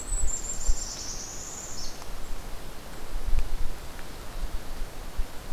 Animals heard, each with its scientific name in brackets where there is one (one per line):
Golden-crowned Kinglet (Regulus satrapa)
Northern Parula (Setophaga americana)